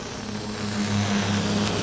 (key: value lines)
label: anthrophony, boat engine
recorder: SoundTrap 500